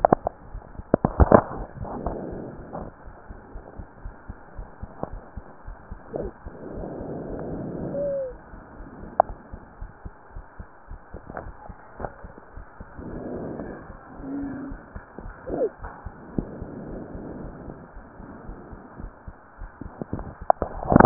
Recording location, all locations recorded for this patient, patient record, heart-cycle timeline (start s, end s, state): pulmonary valve (PV)
aortic valve (AV)+pulmonary valve (PV)+tricuspid valve (TV)+mitral valve (MV)
#Age: Child
#Sex: Male
#Height: 133.0 cm
#Weight: 42.6 kg
#Pregnancy status: False
#Murmur: Unknown
#Murmur locations: nan
#Most audible location: nan
#Systolic murmur timing: nan
#Systolic murmur shape: nan
#Systolic murmur grading: nan
#Systolic murmur pitch: nan
#Systolic murmur quality: nan
#Diastolic murmur timing: nan
#Diastolic murmur shape: nan
#Diastolic murmur grading: nan
#Diastolic murmur pitch: nan
#Diastolic murmur quality: nan
#Outcome: Normal
#Campaign: 2015 screening campaign
0.00	15.82	unannotated
15.82	15.90	S1
15.90	16.05	systole
16.05	16.11	S2
16.11	16.37	diastole
16.37	16.47	S1
16.47	16.60	systole
16.60	16.67	S2
16.67	16.89	diastole
16.89	17.00	S1
17.00	17.14	systole
17.14	17.20	S2
17.20	17.44	diastole
17.44	17.54	S1
17.54	17.66	systole
17.66	17.74	S2
17.74	17.94	diastole
17.94	18.01	S1
18.01	18.18	systole
18.18	18.24	S2
18.24	18.47	diastole
18.47	18.58	S1
18.58	18.70	systole
18.70	18.80	S2
18.80	19.01	diastole
19.01	19.12	S1
19.12	19.26	systole
19.26	19.36	S2
19.36	19.62	diastole
19.62	19.72	S1
19.72	21.06	unannotated